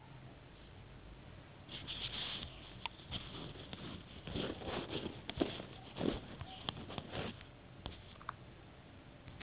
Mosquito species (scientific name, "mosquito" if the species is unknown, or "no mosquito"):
no mosquito